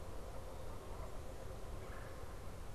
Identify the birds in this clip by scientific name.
Branta canadensis, Melanerpes carolinus